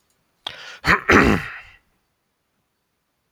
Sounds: Throat clearing